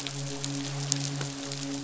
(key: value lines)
label: biophony, midshipman
recorder: SoundTrap 500